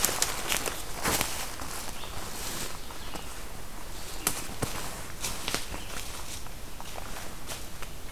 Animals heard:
Red-eyed Vireo (Vireo olivaceus)

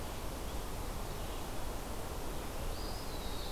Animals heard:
Eastern Wood-Pewee (Contopus virens)

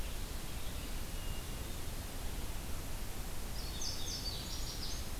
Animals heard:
Indigo Bunting (Passerina cyanea), Hermit Thrush (Catharus guttatus)

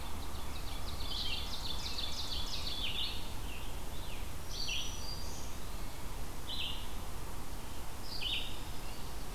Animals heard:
Ovenbird (Seiurus aurocapilla), Red-eyed Vireo (Vireo olivaceus), Scarlet Tanager (Piranga olivacea), Red-breasted Nuthatch (Sitta canadensis), Black-throated Green Warbler (Setophaga virens)

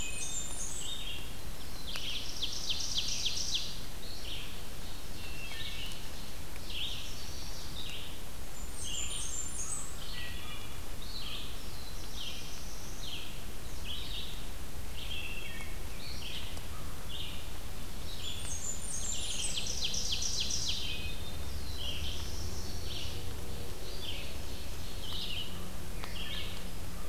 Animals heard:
Black-throated Blue Warbler (Setophaga caerulescens), Blackburnian Warbler (Setophaga fusca), American Crow (Corvus brachyrhynchos), Wood Thrush (Hylocichla mustelina), Chestnut-sided Warbler (Setophaga pensylvanica), Red-eyed Vireo (Vireo olivaceus), Ovenbird (Seiurus aurocapilla)

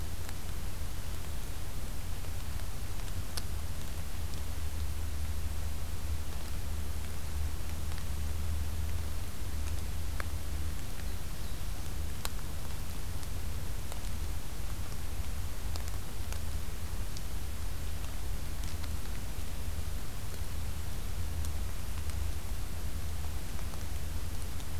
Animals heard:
Black-throated Blue Warbler (Setophaga caerulescens)

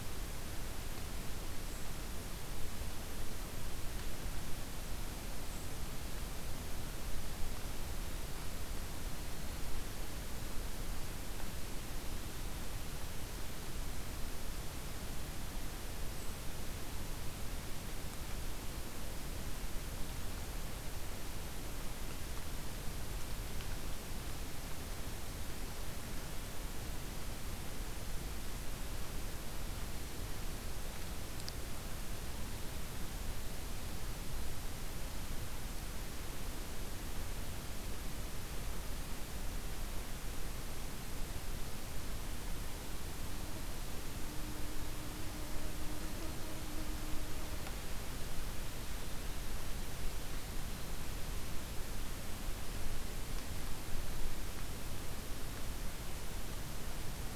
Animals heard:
Golden-crowned Kinglet (Regulus satrapa)

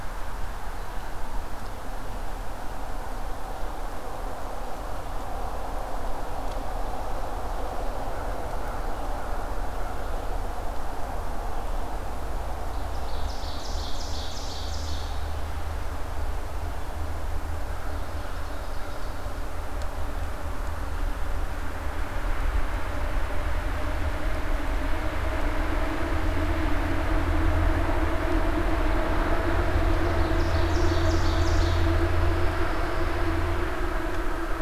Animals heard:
Ovenbird (Seiurus aurocapilla), Pine Warbler (Setophaga pinus)

